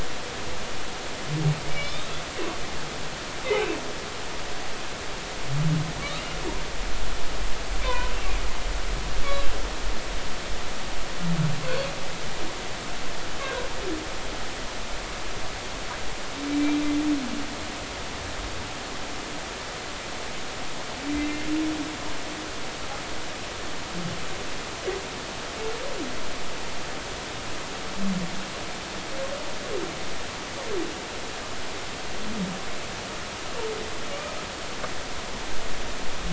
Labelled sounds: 1.7	2.1	humpback whale, 2.2 to 3.9 kHz
7.8	8.1	humpback whale, 0.93 to 1.1 kHz
9.2	9.5	humpback whale, 1.1 to 1.2 kHz
16.5	16.8	humpback whale, 2.3 to 2.4 kHz
21.1	21.5	humpback whale, 2.0 to 2.1 kHz

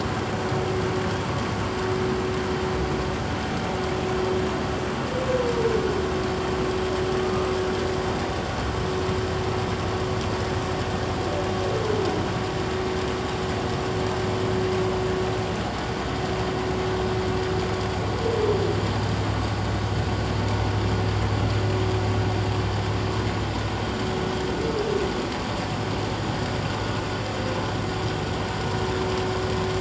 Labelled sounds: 7.2	7.5	humpback whale, 1.2 to 1.3 kHz

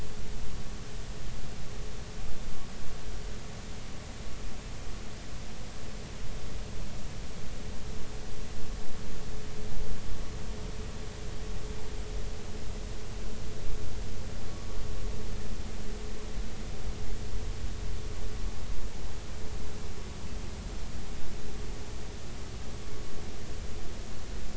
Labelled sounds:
14.5	14.8	vessel noise, 1.1 to 1.2 kHz

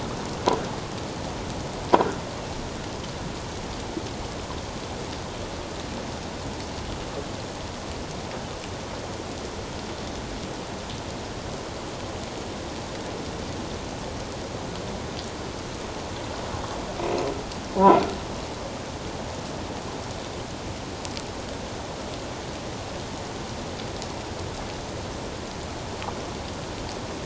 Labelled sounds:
17.0	17.3	croaking sound likely from a nearby submerged object, 2.4 to 2.8 kHz

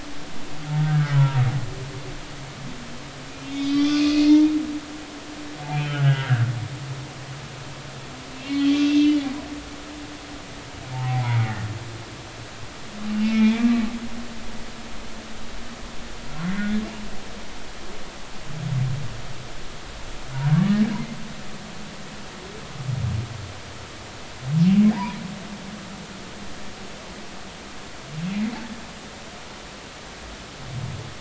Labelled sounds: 0.8	1.4	humpback whale, 0.90 to 1.7 kHz
3.3	4.5	humpback whale, 2.0 to 4.7 kHz
5.8	6.4	humpback whale, 1.2 to 1.7 kHz
8.5	9.3	humpback whale, 1.9 to 3.4 kHz
10.9	11.5	humpback whale, 0.80 to 2.3 kHz
13.2	13.7	humpback whale, 2.1 to 3.5 kHz
24.9	25.2	humpback whale, 0.80 to 1.2 kHz

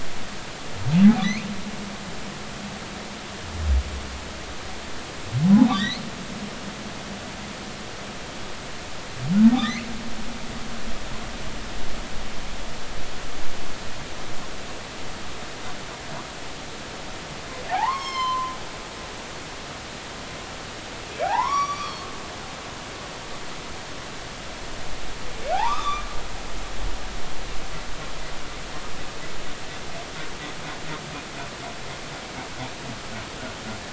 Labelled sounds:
5.5	6.0	humpback whale, 0.80 to 4.5 kHz
9.6	9.9	humpback whale, 3.3 to 6.3 kHz
17.6	18.6	humpback whale, 0.80 to 6.6 kHz
21.2	22.1	humpback whale, 0.80 to 5.9 kHz
25.5	26.0	humpback whale, 0.80 to 3.7 kHz

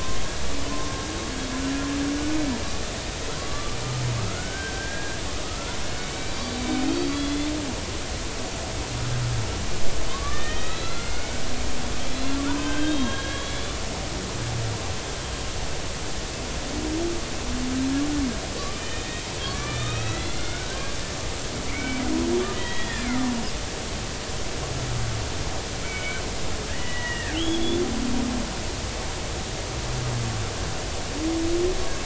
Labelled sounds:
0.7	0.9	killer whale, Bigg's (transient), 0.99 to 1.1 kHz
3.4	3.8	killer whale, Bigg's (transient), 0.99 to 1.2 kHz
4.3	7.5	killer whale, Bigg's (transient), 1.2 to 4.8 kHz
10.1	11.5	killer whale, Bigg's (transient), 0.99 to 4.2 kHz
12.1	13.8	killer whale, Bigg's (transient), 0.90 to 4.2 kHz
18.7	20.9	killer whale, Bigg's (transient), 1.0 to 4.2 kHz
21.7	22.0	killer whale, Bigg's (transient), 2.0 to 2.4 kHz
22.5	23.2	killer whale, Bigg's (transient), 1.7 to 5.0 kHz
25.8	26.2	killer whale, Bigg's (transient), 1.4 to 2.4 kHz
26.7	27.8	killer whale, Bigg's (transient), 1.5 to 3.6 kHz

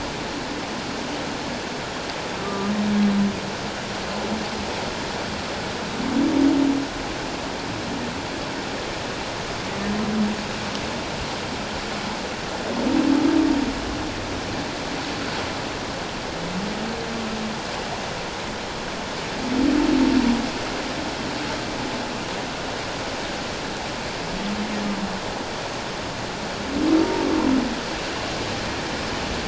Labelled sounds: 2.4	2.7	humpback whale, 1.16 to 1.25 kHz

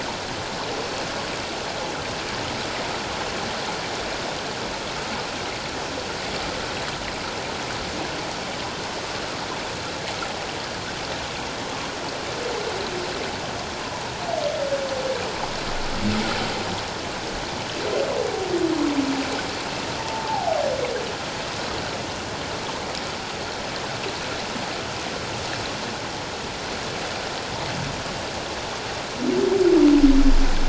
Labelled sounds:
20.0	20.6	humpback whale, 0.78 to 0.97 kHz

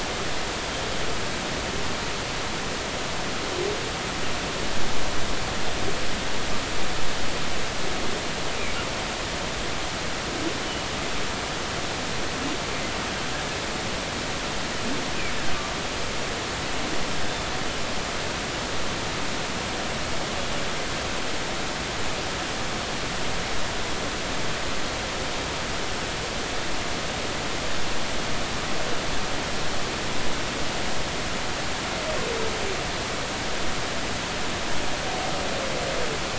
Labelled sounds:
10.6	10.9	humpback whale, 2.9 to 3.0 kHz
17.3	17.5	humpback whale, 3.4 to 3.6 kHz

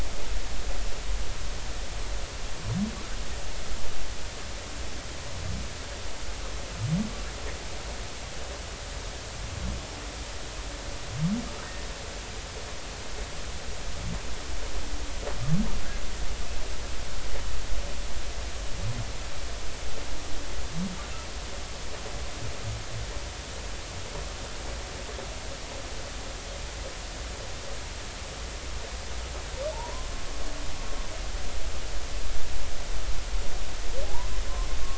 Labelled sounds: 29.7	30.1	humpback whale, 0.83 to 1.1 kHz
34.0	34.3	humpback whale, 0.80 to 1.1 kHz

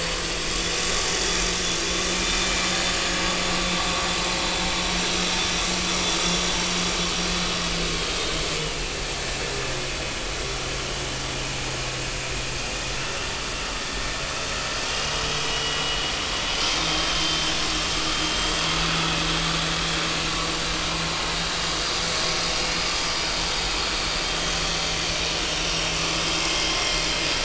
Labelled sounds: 2.1	2.4	vessel noise, 2.3 to 2.5 kHz
8.0	8.2	vessel noise, 3.2 to 3.3 kHz
14.9	16.0	vessel noise, 2.8 to 3.0 kHz
17.2	17.5	vessel noise, 3.1 to 3.2 kHz
24.2	24.5	vessel noise, 3.1 to 3.3 kHz
26.8	27.0	vessel noise, 2.0 to 2.2 kHz

